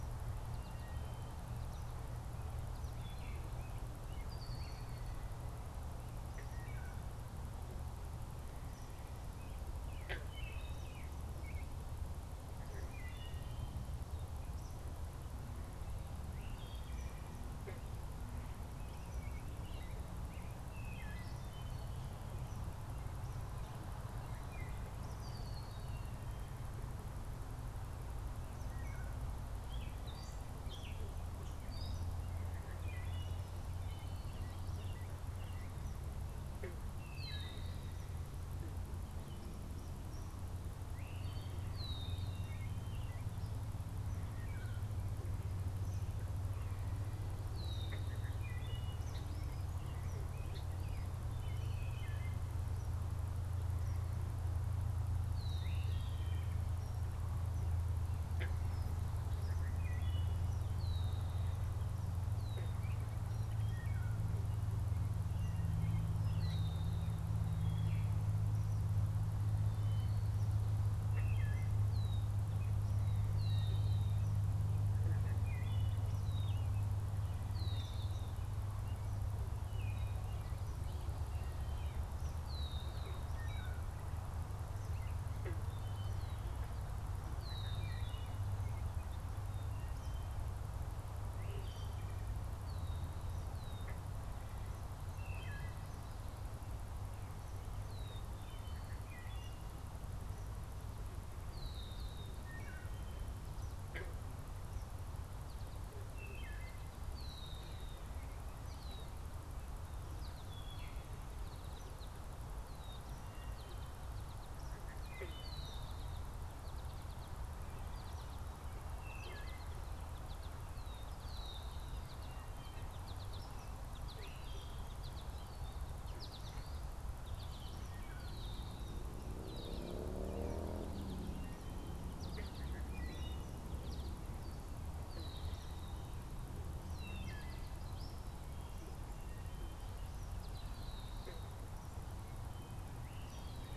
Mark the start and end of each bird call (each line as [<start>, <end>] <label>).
[0.30, 2.30] American Goldfinch (Spinus tristis)
[3.00, 13.60] Wood Thrush (Hylocichla mustelina)
[4.10, 5.10] Red-winged Blackbird (Agelaius phoeniceus)
[6.10, 11.10] Eastern Kingbird (Tyrannus tyrannus)
[10.80, 12.00] American Robin (Turdus migratorius)
[14.30, 25.40] Eastern Kingbird (Tyrannus tyrannus)
[16.40, 17.40] Wood Thrush (Hylocichla mustelina)
[18.70, 22.20] Gray Catbird (Dumetella carolinensis)
[20.60, 21.50] Wood Thrush (Hylocichla mustelina)
[24.00, 24.90] Wood Thrush (Hylocichla mustelina)
[25.00, 26.00] Red-winged Blackbird (Agelaius phoeniceus)
[29.50, 32.20] Gray Catbird (Dumetella carolinensis)
[32.70, 37.60] Wood Thrush (Hylocichla mustelina)
[33.70, 36.00] American Robin (Turdus migratorius)
[37.00, 42.40] Red-winged Blackbird (Agelaius phoeniceus)
[42.40, 43.30] American Robin (Turdus migratorius)
[44.20, 45.00] Wood Thrush (Hylocichla mustelina)
[45.70, 59.00] Eastern Kingbird (Tyrannus tyrannus)
[47.40, 48.10] Red-winged Blackbird (Agelaius phoeniceus)
[47.80, 56.60] Wood Thrush (Hylocichla mustelina)
[55.20, 55.80] Red-winged Blackbird (Agelaius phoeniceus)
[59.40, 60.40] Wood Thrush (Hylocichla mustelina)
[60.60, 72.30] Red-winged Blackbird (Agelaius phoeniceus)
[63.60, 72.10] Wood Thrush (Hylocichla mustelina)
[73.10, 87.90] Red-winged Blackbird (Agelaius phoeniceus)
[74.90, 75.80] Wood Thrush (Hylocichla mustelina)
[79.50, 80.40] Wood Thrush (Hylocichla mustelina)
[83.30, 84.00] Wood Thrush (Hylocichla mustelina)
[87.80, 88.30] Wood Thrush (Hylocichla mustelina)
[89.60, 102.90] Wood Thrush (Hylocichla mustelina)
[92.50, 102.50] Red-winged Blackbird (Agelaius phoeniceus)
[106.00, 115.40] Wood Thrush (Hylocichla mustelina)
[106.90, 115.80] Red-winged Blackbird (Agelaius phoeniceus)
[111.50, 143.76] American Goldfinch (Spinus tristis)
[119.00, 119.60] Wood Thrush (Hylocichla mustelina)
[120.70, 121.80] Red-winged Blackbird (Agelaius phoeniceus)
[124.10, 124.80] Wood Thrush (Hylocichla mustelina)
[129.30, 129.80] Red-winged Blackbird (Agelaius phoeniceus)
[132.70, 133.50] Wood Thrush (Hylocichla mustelina)
[135.00, 143.76] Red-winged Blackbird (Agelaius phoeniceus)
[136.80, 137.70] Wood Thrush (Hylocichla mustelina)